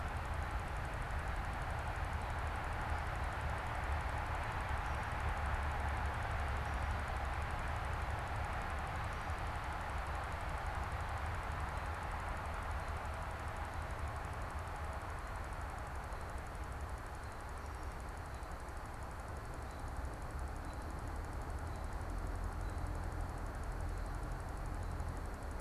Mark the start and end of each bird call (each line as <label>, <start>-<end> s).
American Robin (Turdus migratorius), 0.0-20.9 s